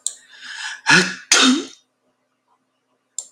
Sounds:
Sneeze